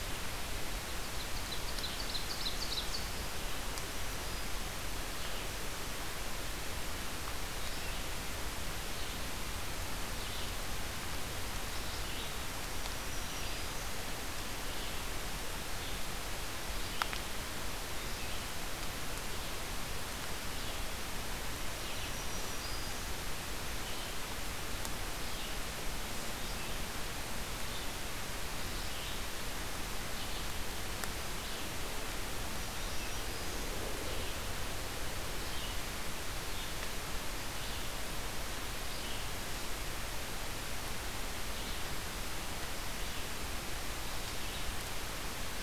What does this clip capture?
Ovenbird, Black-throated Green Warbler, Red-eyed Vireo